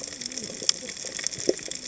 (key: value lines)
label: biophony, cascading saw
recorder: HydroMoth